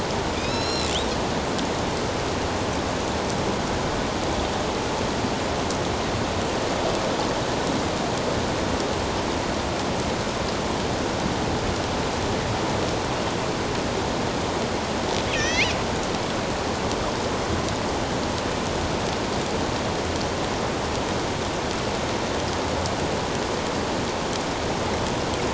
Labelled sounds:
0.3	0.9	killer whale, northern resident, A clan, AB subclan, 2.3 to 7.0 kHz
15.3	15.7	killer whale, northern resident, A clan, AB subclan, 1.7 to 6.2 kHz

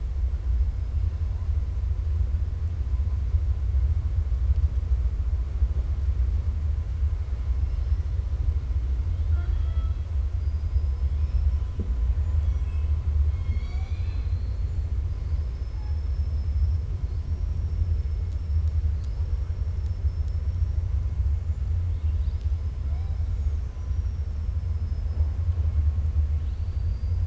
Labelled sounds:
7.7	8.1	killer whale, 4.2 to 6.0 kHz
9.1	10.0	killer whale, 0.35 to 4.6 kHz
11.1	11.6	killer whale, 4.8 to 5.7 kHz
12.1	12.9	killer whale, 1.7 to 7.8 kHz
13.3	14.7	killer whale, 0.77 to 7.2 kHz
15.1	16.8	killer whale, 4.0 to 5.6 kHz
26.3	27.2	killer whale, 2.6 to 5.1 kHz

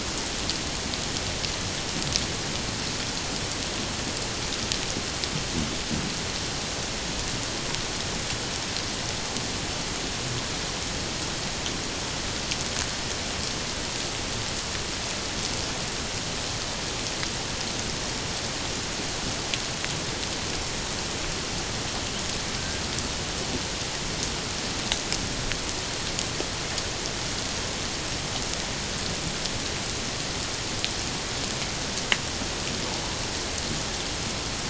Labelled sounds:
22.6	22.8	killer whale, 1.5 to 1.7 kHz

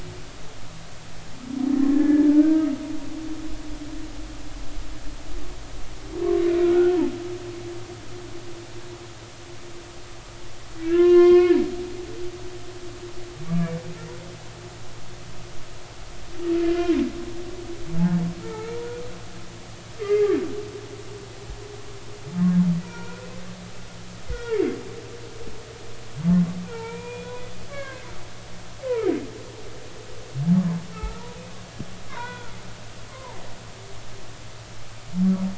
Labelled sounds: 1.8	2.7	humpback whale, 1.4 to 2.0 kHz
6.6	7.0	humpback whale, 1.3 to 1.5 kHz
10.9	11.6	humpback whale, 0.99 to 4.6 kHz
13.5	13.7	humpback whale, 1.1 to 1.2 kHz
16.6	16.9	humpback whale, 1.7 to 1.8 kHz
18.4	19.0	humpback whale, 0.80 to 2.4 kHz
20.0	20.3	humpback whale, 1.9 to 2.2 kHz
22.8	23.2	humpback whale, 0.90 to 2.5 kHz
24.3	24.6	humpback whale, 1.3 to 2.1 kHz
26.6	28.1	humpback whale, 0.86 to 3.5 kHz
28.9	29.1	humpback whale, 1.2 to 2.6 kHz
30.9	31.3	humpback whale, 1.2 to 1.4 kHz
32.1	32.5	humpback whale, 0.90 to 3.5 kHz
33.1	33.4	humpback whale, 0.83 to 1.1 kHz

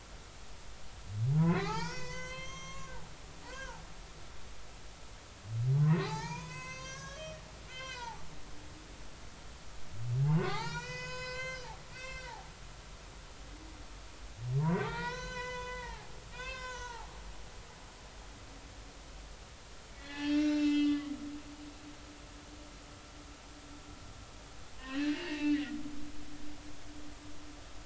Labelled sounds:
1.4	3.8	humpback whale, 0.80 to 8.0 kHz
5.8	7.4	humpback whale, 0.80 to 8.0 kHz
7.7	9.1	humpback whale, 0.80 to 5.3 kHz
10.2	12.5	humpback whale, 0.80 to 8.0 kHz
14.8	17.1	humpback whale, 0.80 to 6.7 kHz
20.0	21.1	humpback whale, 1.1 to 7.1 kHz
24.8	26.2	humpback whale, 0.86 to 4.2 kHz

